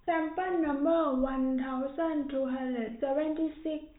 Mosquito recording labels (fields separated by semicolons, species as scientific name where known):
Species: no mosquito; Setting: cup